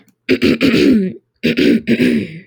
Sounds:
Throat clearing